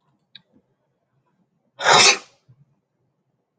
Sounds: Sneeze